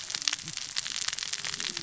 {"label": "biophony, cascading saw", "recorder": "SoundTrap 600 or HydroMoth"}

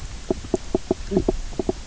{"label": "biophony, knock croak", "recorder": "SoundTrap 300"}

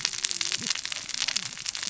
{"label": "biophony, cascading saw", "recorder": "SoundTrap 600 or HydroMoth"}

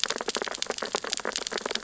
{"label": "biophony, sea urchins (Echinidae)", "recorder": "SoundTrap 600 or HydroMoth"}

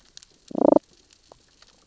{"label": "biophony, damselfish", "recorder": "SoundTrap 600 or HydroMoth"}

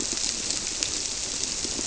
{"label": "biophony", "recorder": "SoundTrap 300"}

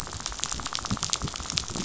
{"label": "biophony, rattle", "recorder": "SoundTrap 500"}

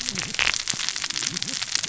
{"label": "biophony, cascading saw", "recorder": "SoundTrap 600 or HydroMoth"}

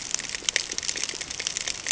{"label": "ambient", "recorder": "HydroMoth"}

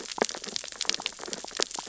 {"label": "biophony, sea urchins (Echinidae)", "recorder": "SoundTrap 600 or HydroMoth"}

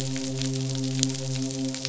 {"label": "biophony, midshipman", "recorder": "SoundTrap 500"}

